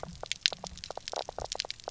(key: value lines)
label: biophony, knock croak
recorder: SoundTrap 300